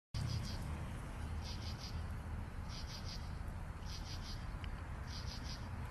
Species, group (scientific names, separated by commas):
Pterophylla camellifolia, Orthoptera